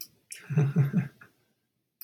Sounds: Laughter